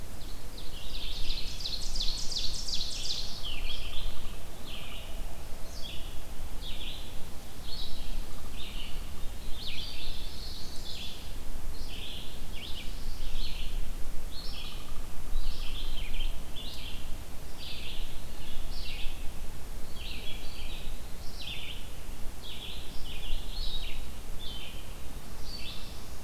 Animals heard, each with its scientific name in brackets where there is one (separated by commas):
Ovenbird (Seiurus aurocapilla), Chimney Swift (Chaetura pelagica), Pine Warbler (Setophaga pinus), Red-eyed Vireo (Vireo olivaceus), Pileated Woodpecker (Dryocopus pileatus)